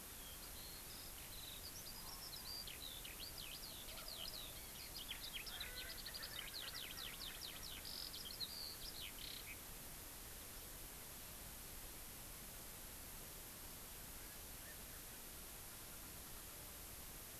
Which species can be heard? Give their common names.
Eurasian Skylark, Erckel's Francolin